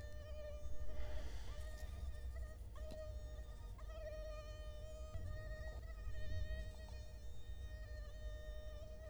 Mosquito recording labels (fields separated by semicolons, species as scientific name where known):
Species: Culex quinquefasciatus; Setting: cup